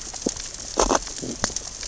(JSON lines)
{"label": "biophony, sea urchins (Echinidae)", "recorder": "SoundTrap 600 or HydroMoth"}